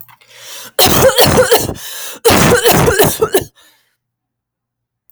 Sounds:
Cough